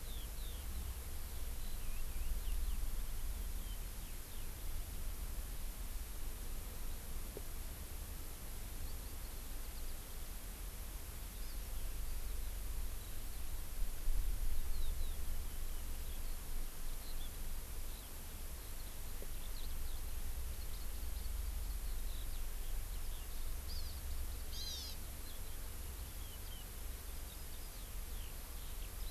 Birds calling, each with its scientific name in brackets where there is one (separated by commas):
Eurasian Skylark (Alauda arvensis), Hawaii Amakihi (Chlorodrepanis virens), Warbling White-eye (Zosterops japonicus)